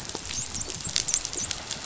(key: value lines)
label: biophony, dolphin
recorder: SoundTrap 500